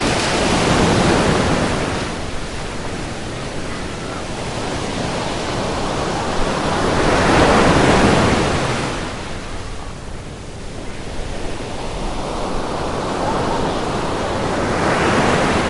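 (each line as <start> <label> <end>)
0.0 The sound of a wave fading at the beach. 3.6
3.7 The sound of a wave gradually increasing and then fading in intensity. 11.1
11.1 The sound of a wave approaching gradually increases. 15.7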